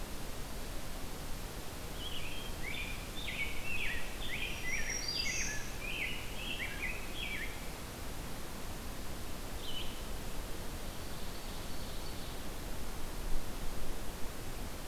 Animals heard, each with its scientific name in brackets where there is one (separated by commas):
Ovenbird (Seiurus aurocapilla), Rose-breasted Grosbeak (Pheucticus ludovicianus), Black-throated Green Warbler (Setophaga virens), Red-eyed Vireo (Vireo olivaceus)